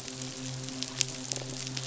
{"label": "biophony, midshipman", "recorder": "SoundTrap 500"}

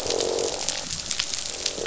{"label": "biophony, croak", "recorder": "SoundTrap 500"}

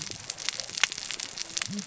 {"label": "biophony, cascading saw", "recorder": "SoundTrap 600 or HydroMoth"}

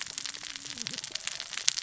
{"label": "biophony, cascading saw", "recorder": "SoundTrap 600 or HydroMoth"}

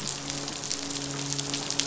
{"label": "biophony, midshipman", "recorder": "SoundTrap 500"}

